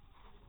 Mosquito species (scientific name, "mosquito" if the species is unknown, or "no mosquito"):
mosquito